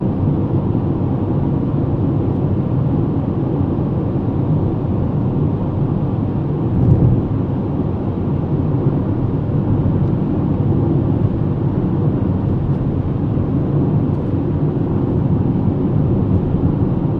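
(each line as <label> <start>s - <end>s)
A car is being driven with the windows closed, producing a muted, low-frequency hum of the engine and road noise. 0.0s - 17.2s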